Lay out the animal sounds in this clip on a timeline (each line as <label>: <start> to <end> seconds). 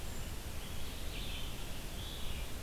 Red-eyed Vireo (Vireo olivaceus): 0.0 to 2.6 seconds